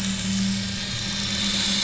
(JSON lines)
{"label": "anthrophony, boat engine", "recorder": "SoundTrap 500"}